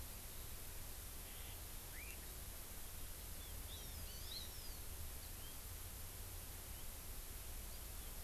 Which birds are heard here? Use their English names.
Hawaii Amakihi